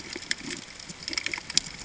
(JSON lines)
{"label": "ambient", "recorder": "HydroMoth"}